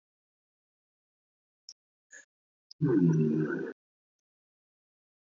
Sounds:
Sigh